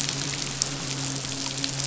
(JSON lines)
{"label": "biophony, midshipman", "recorder": "SoundTrap 500"}